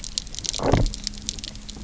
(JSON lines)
{"label": "biophony, low growl", "recorder": "SoundTrap 300"}